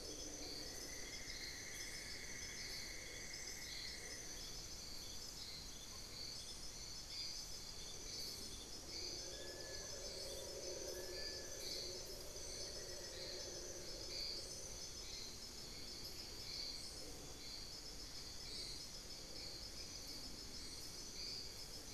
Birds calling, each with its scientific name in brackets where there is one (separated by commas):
Cinnamon-throated Woodcreeper (Dendrexetastes rufigula), Amazonian Barred-Woodcreeper (Dendrocolaptes certhia), Long-billed Woodcreeper (Nasica longirostris)